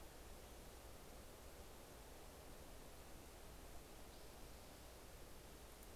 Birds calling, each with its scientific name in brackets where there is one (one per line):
Spotted Towhee (Pipilo maculatus)